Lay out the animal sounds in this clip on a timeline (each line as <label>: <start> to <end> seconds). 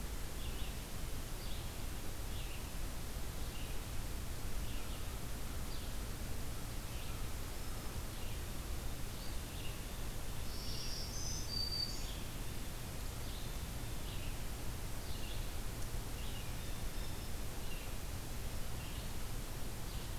Red-eyed Vireo (Vireo olivaceus): 0.0 to 20.2 seconds
Black-throated Green Warbler (Setophaga virens): 10.4 to 12.1 seconds
Blue Jay (Cyanocitta cristata): 16.5 to 17.4 seconds